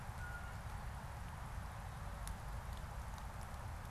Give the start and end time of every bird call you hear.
[0.00, 0.70] Blue Jay (Cyanocitta cristata)

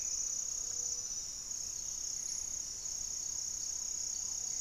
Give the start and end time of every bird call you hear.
[0.00, 1.54] Great Antshrike (Taraba major)
[0.34, 1.24] Gray-fronted Dove (Leptotila rufaxilla)
[3.04, 4.60] Black-tailed Trogon (Trogon melanurus)

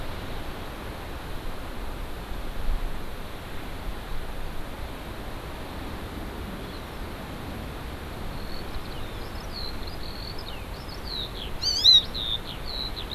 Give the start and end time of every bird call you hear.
[6.64, 7.14] Hawaii Amakihi (Chlorodrepanis virens)
[8.24, 13.15] Eurasian Skylark (Alauda arvensis)
[11.54, 12.04] Hawaii Amakihi (Chlorodrepanis virens)

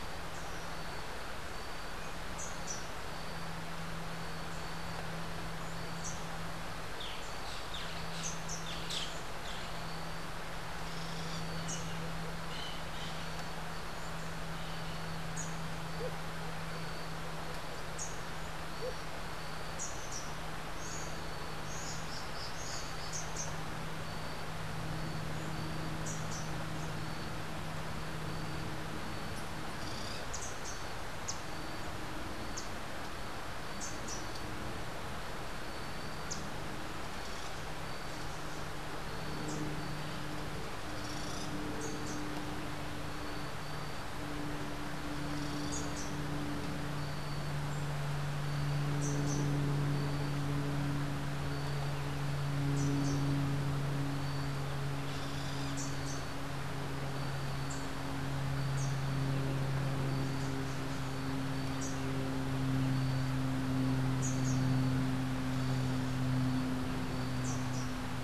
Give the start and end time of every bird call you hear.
[2.20, 2.90] Rufous-capped Warbler (Basileuterus rufifrons)
[5.80, 6.30] Rufous-capped Warbler (Basileuterus rufifrons)
[6.90, 9.20] Boat-billed Flycatcher (Megarynchus pitangua)
[10.80, 11.50] Boat-billed Flycatcher (Megarynchus pitangua)
[17.90, 18.30] Rufous-capped Warbler (Basileuterus rufifrons)
[19.60, 20.40] Rufous-capped Warbler (Basileuterus rufifrons)
[20.80, 22.30] Buff-throated Saltator (Saltator maximus)
[23.00, 23.50] Rufous-capped Warbler (Basileuterus rufifrons)
[25.90, 26.50] Rufous-capped Warbler (Basileuterus rufifrons)
[30.20, 30.80] Rufous-capped Warbler (Basileuterus rufifrons)
[32.50, 32.70] Yellow Warbler (Setophaga petechia)
[33.70, 34.30] Rufous-capped Warbler (Basileuterus rufifrons)
[36.10, 36.50] Yellow Warbler (Setophaga petechia)
[41.70, 42.20] Rufous-capped Warbler (Basileuterus rufifrons)
[45.60, 46.10] Rufous-capped Warbler (Basileuterus rufifrons)
[48.90, 49.60] Rufous-capped Warbler (Basileuterus rufifrons)
[52.70, 53.20] Rufous-capped Warbler (Basileuterus rufifrons)
[55.70, 56.30] Rufous-capped Warbler (Basileuterus rufifrons)
[58.60, 68.20] Rufous-capped Warbler (Basileuterus rufifrons)

